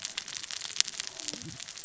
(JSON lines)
{"label": "biophony, cascading saw", "recorder": "SoundTrap 600 or HydroMoth"}